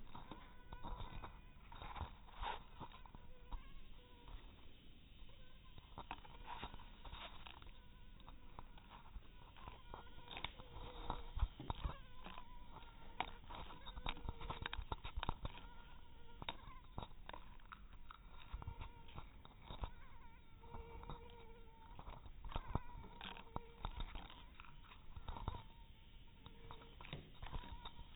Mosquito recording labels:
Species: mosquito; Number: one; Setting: cup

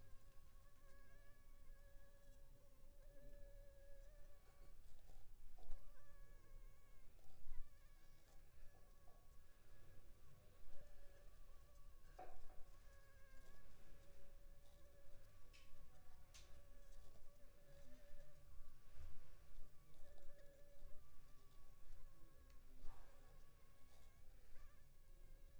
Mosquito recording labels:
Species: Anopheles funestus s.l.; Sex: female; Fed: unfed; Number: one; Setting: cup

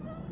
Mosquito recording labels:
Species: Aedes albopictus; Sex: male; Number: one; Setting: insect culture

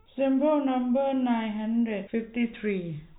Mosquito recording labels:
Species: no mosquito; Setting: cup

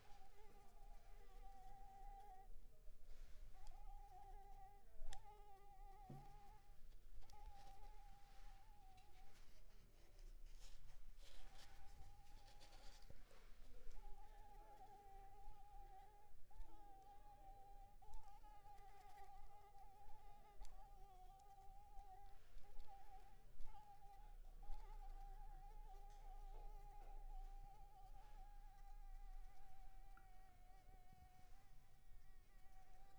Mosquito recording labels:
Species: Anopheles arabiensis; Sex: female; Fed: unfed; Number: one; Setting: cup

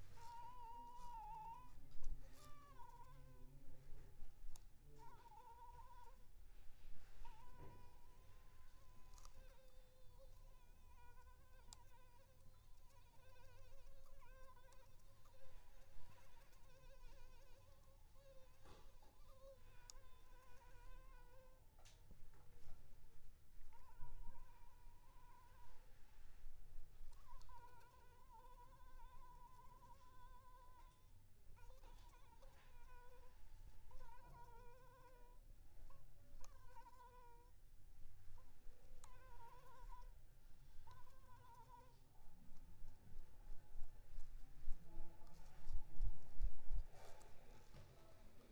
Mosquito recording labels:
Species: Anopheles arabiensis; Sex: female; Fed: unfed; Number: one; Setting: cup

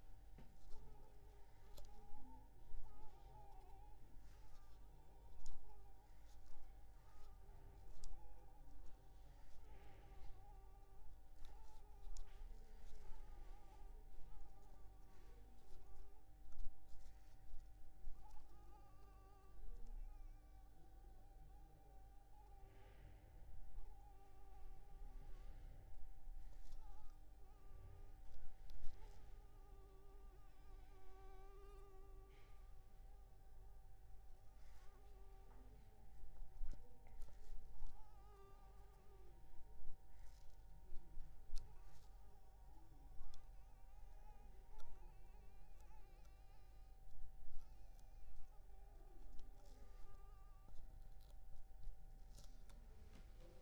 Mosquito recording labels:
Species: Anopheles arabiensis; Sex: female; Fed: unfed; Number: one; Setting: cup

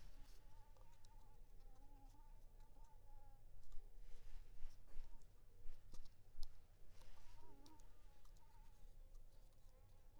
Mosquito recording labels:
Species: Anopheles coustani; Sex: female; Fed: unfed; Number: one; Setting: cup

